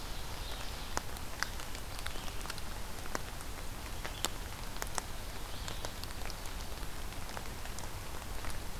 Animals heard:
Red-eyed Vireo (Vireo olivaceus)

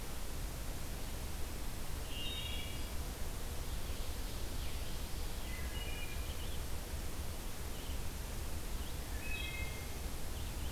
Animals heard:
Wood Thrush (Hylocichla mustelina)
Ovenbird (Seiurus aurocapilla)

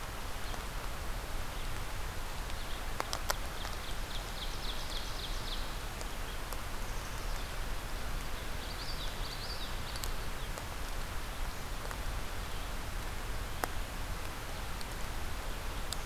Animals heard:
Common Yellowthroat (Geothlypis trichas)
Ovenbird (Seiurus aurocapilla)
Black-capped Chickadee (Poecile atricapillus)

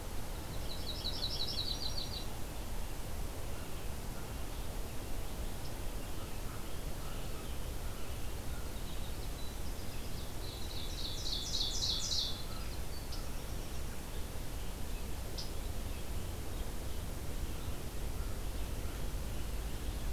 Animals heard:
Yellow-rumped Warbler (Setophaga coronata)
American Robin (Turdus migratorius)
Ovenbird (Seiurus aurocapilla)
American Crow (Corvus brachyrhynchos)
Winter Wren (Troglodytes hiemalis)
Red-eyed Vireo (Vireo olivaceus)

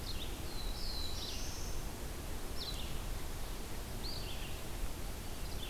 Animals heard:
Black-throated Blue Warbler (Setophaga caerulescens)
Red-eyed Vireo (Vireo olivaceus)

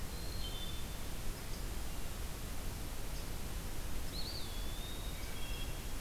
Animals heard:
Eastern Wood-Pewee (Contopus virens)
Wood Thrush (Hylocichla mustelina)

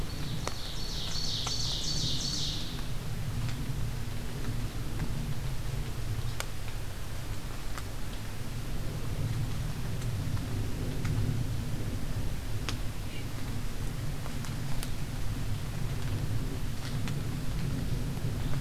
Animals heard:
Ovenbird (Seiurus aurocapilla)

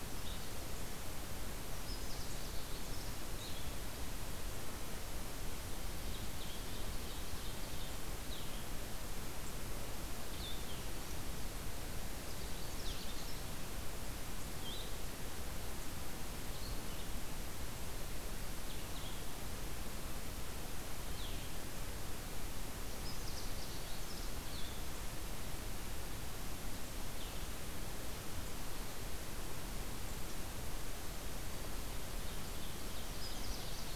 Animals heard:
Blue-headed Vireo (Vireo solitarius)
Ovenbird (Seiurus aurocapilla)
Canada Warbler (Cardellina canadensis)

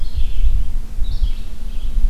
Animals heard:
Red-eyed Vireo (Vireo olivaceus)

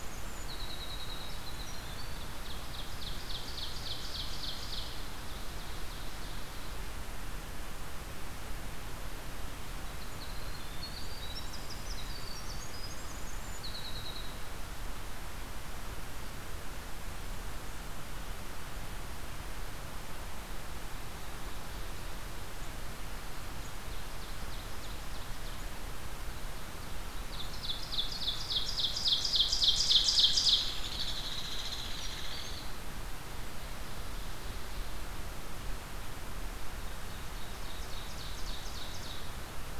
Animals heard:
Ovenbird (Seiurus aurocapilla)
Winter Wren (Troglodytes hiemalis)
Hairy Woodpecker (Dryobates villosus)

